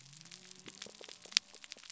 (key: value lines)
label: biophony
recorder: SoundTrap 300